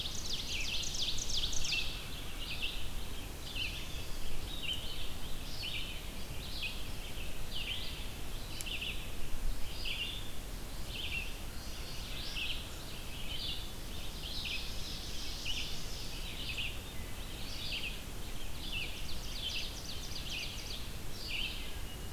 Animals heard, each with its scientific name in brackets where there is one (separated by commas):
Red-eyed Vireo (Vireo olivaceus), Ovenbird (Seiurus aurocapilla)